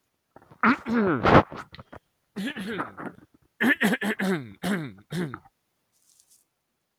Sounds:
Throat clearing